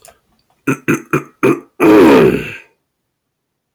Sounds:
Throat clearing